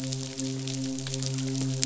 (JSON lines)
{"label": "biophony, midshipman", "recorder": "SoundTrap 500"}